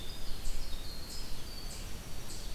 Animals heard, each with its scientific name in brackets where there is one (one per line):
Winter Wren (Troglodytes hiemalis)
Eastern Chipmunk (Tamias striatus)
Red-eyed Vireo (Vireo olivaceus)